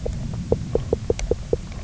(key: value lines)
label: biophony, knock
recorder: SoundTrap 300